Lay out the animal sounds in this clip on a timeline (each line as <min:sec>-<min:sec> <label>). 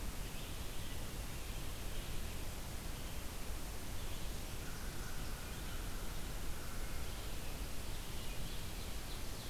0:00.0-0:09.5 Red-eyed Vireo (Vireo olivaceus)
0:04.5-0:07.1 American Crow (Corvus brachyrhynchos)
0:07.3-0:09.5 Ovenbird (Seiurus aurocapilla)